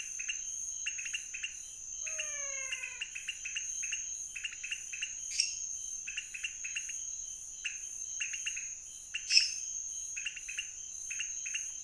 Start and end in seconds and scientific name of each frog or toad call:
0.0	11.8	Leptodactylus podicipinus
2.0	3.2	Physalaemus albonotatus
5.1	5.8	Dendropsophus minutus
9.0	9.8	Dendropsophus minutus